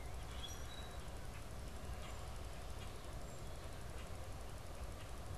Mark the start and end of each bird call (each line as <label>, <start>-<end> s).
Common Grackle (Quiscalus quiscula), 0.0-4.2 s